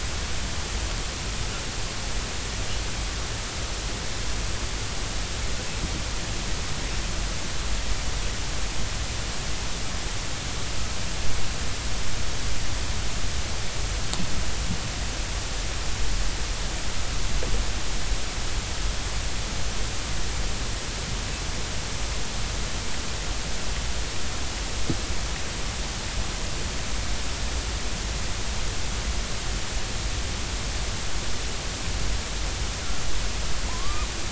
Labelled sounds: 33.7	34.1	killer whale, northern resident, 0.90 to 1.3 kHz

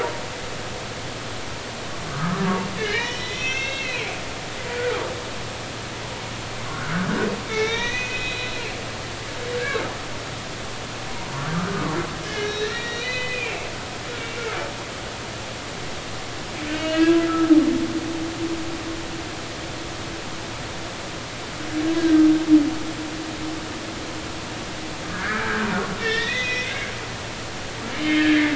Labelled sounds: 2.1	2.4	humpback whale, 1.1 to 1.3 kHz
2.8	5.0	humpback whale, 1.2 to 6.0 kHz
6.7	8.5	humpback whale, 1.2 to 6.6 kHz
12.2	13.7	humpback whale, 1.6 to 5.8 kHz
16.7	17.2	humpback whale, 1.5 to 4.7 kHz
22.0	22.2	humpback whale, 1.5 to 1.7 kHz
25.1	25.7	humpback whale, 1.4 to 2.0 kHz
26.0	27.3	humpback whale, 1.7 to 6.1 kHz
28.0	28.5	humpback whale, 1.6 to 3.3 kHz

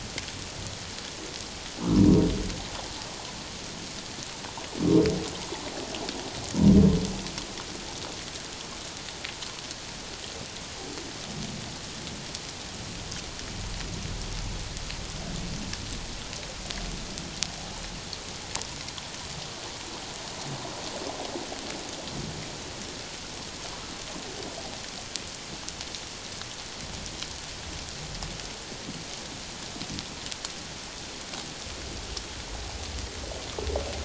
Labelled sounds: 1.8	2.2	humpback whale, 0.94 to 1.4 kHz

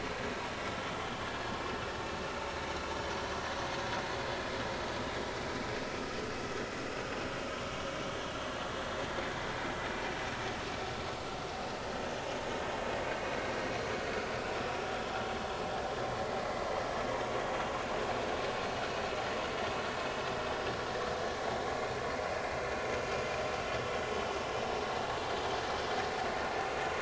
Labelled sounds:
14.0	14.2	vessel noise, 4.4 to 4.6 kHz

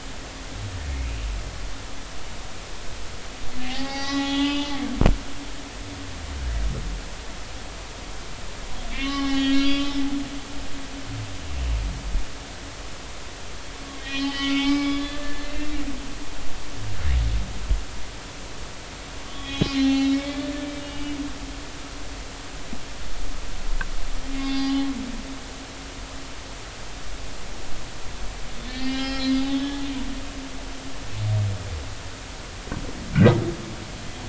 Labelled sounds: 3.6	4.7	humpback whale, 0.80 to 5.9 kHz
8.9	10.0	humpback whale, 0.80 to 5.3 kHz
13.9	15.7	humpback whale, 1.3 to 5.3 kHz
19.3	21.2	humpback whale, 0.80 to 4.4 kHz
24.3	24.9	humpback whale, 0.80 to 5.0 kHz
28.7	29.8	humpback whale, 0.80 to 5.5 kHz

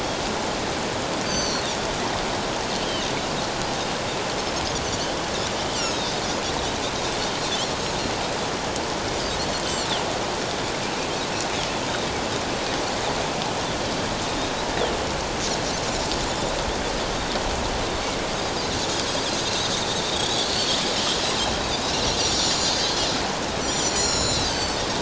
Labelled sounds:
1.2	1.7	Pacific white-sided dolphin, 4.1 to 6.2 kHz
5.7	6.0	Pacific white-sided dolphin, 2.5 to 6.1 kHz
20.1	20.7	Pacific white-sided dolphin, 4.2 to 8.0 kHz
22.2	23.1	Pacific white-sided dolphin, 3.0 to 7.2 kHz
23.6	24.8	Pacific white-sided dolphin, 3.9 to 7.4 kHz

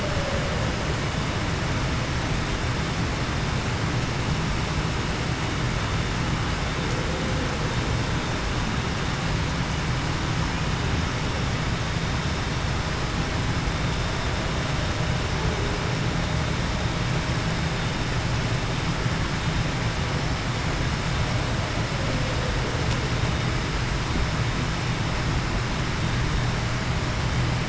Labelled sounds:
0.0	0.4	humpback whale, 0.49 to 0.61 kHz

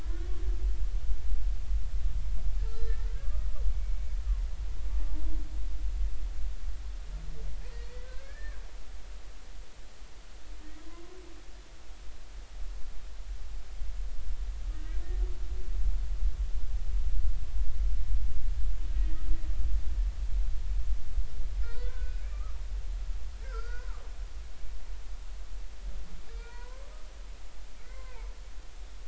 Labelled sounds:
2.7	3.5	humpback whale, 1.1 to 4.1 kHz
8.0	8.6	humpback whale, 1.5 to 1.9 kHz
21.6	22.6	humpback whale, 1.1 to 4.0 kHz
23.4	23.9	humpback whale, 1.3 to 1.7 kHz
26.3	26.9	humpback whale, 0.90 to 2.5 kHz

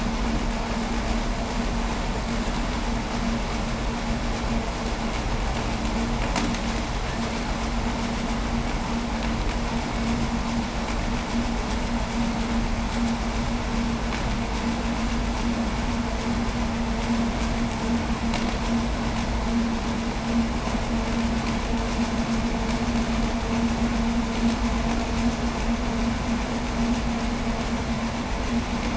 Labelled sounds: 6.1	6.6	vessel noise, 0.07 to 8.0 kHz

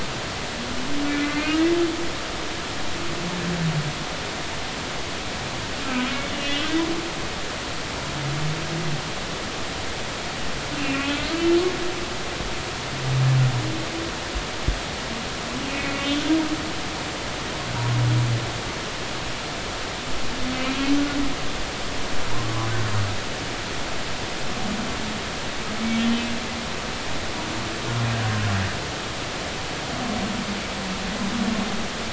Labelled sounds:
1.1	1.5	humpback whale, 2.0 to 2.4 kHz
5.8	6.7	humpback whale, 1.2 to 3.0 kHz
10.7	11.6	humpback whale, 1.4 to 3.1 kHz
15.8	16.1	humpback whale, 2.2 to 2.3 kHz

